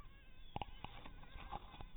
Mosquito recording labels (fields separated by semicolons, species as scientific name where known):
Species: mosquito; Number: one; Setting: cup